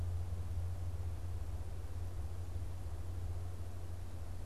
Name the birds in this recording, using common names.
Black-capped Chickadee